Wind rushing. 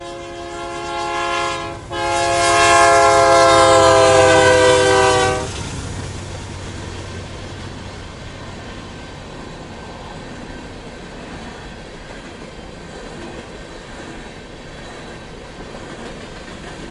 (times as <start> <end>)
5.5 16.9